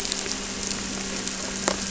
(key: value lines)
label: anthrophony, boat engine
recorder: SoundTrap 300